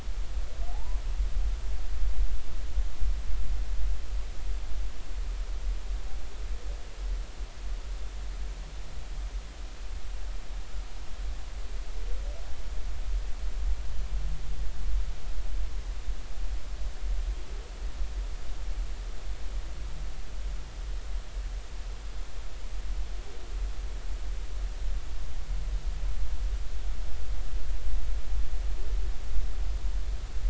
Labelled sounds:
0.7	1.0	humpback whale, 0.80 to 1.1 kHz

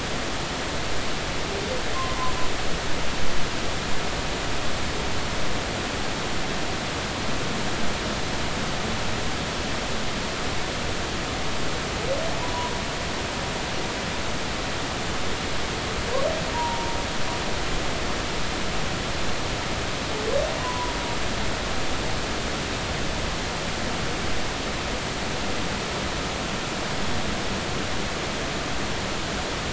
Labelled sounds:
1.9	2.3	humpback whale, 0.96 to 1.1 kHz
12.4	12.7	humpback whale, 0.93 to 1.1 kHz
16.5	16.9	humpback whale, 0.86 to 1.0 kHz
20.6	21.0	humpback whale, 0.93 to 1.1 kHz

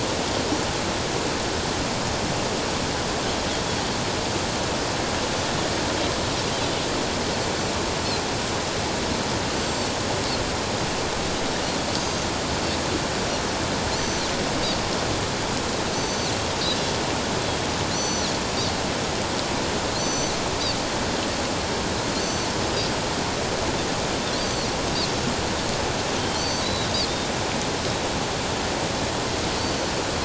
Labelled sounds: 9.5	9.9	Pacific white-sided dolphin, 4.4 to 7.7 kHz
11.9	12.3	Pacific white-sided dolphin, 4.5 to 6.4 kHz
14.0	14.3	Pacific white-sided dolphin, 4.2 to 6.1 kHz
15.9	16.3	Pacific white-sided dolphin, 4.4 to 6.2 kHz
17.9	18.3	Pacific white-sided dolphin, 3.8 to 6.1 kHz
19.9	20.3	Pacific white-sided dolphin, 4.1 to 6.1 kHz
22.2	22.5	Pacific white-sided dolphin, 4.3 to 6.1 kHz
24.4	24.7	Pacific white-sided dolphin, 4.2 to 6.2 kHz
26.2	26.9	Pacific white-sided dolphin, 3.1 to 6.2 kHz
29.6	29.9	Pacific white-sided dolphin, 4.3 to 6.1 kHz

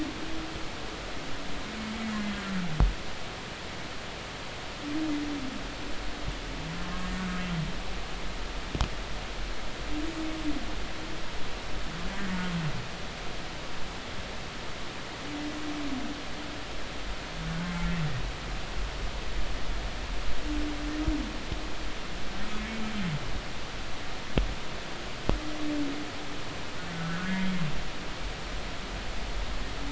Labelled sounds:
6.8	7.1	humpback whale, 1.0 to 1.2 kHz
17.4	17.8	humpback whale, 1.4 to 1.6 kHz
27.3	27.5	humpback whale, 2.0 to 2.1 kHz
27.9	28.3	humpback whale, 1.4 to 1.6 kHz

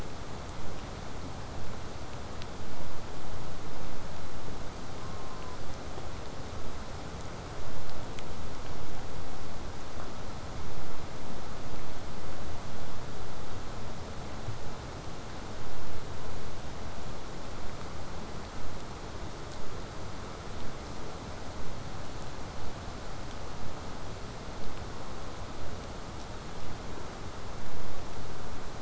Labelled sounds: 5.0	5.6	killer whale, southern resident, J pod, call S04, 0.42 to 1.6 kHz

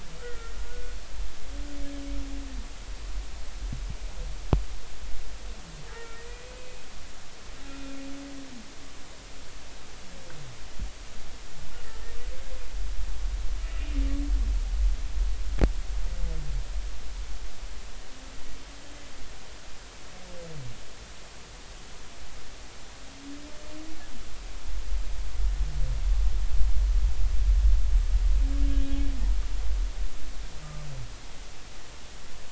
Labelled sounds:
0.2	1.0	humpback whale, 1.3 to 1.6 kHz
5.9	6.5	humpback whale, 1.3 to 2.6 kHz
7.7	8.0	humpback whale, 2.4 to 2.5 kHz

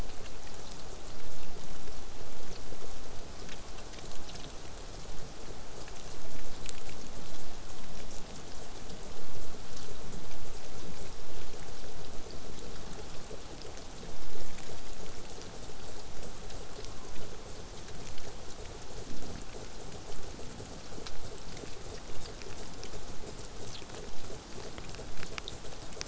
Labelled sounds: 16.5	17.3	killer whale, southern resident, 0.83 to 1.6 kHz

